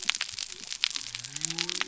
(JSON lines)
{"label": "biophony", "recorder": "SoundTrap 300"}